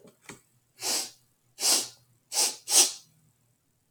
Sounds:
Sniff